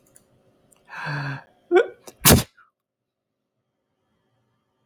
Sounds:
Sneeze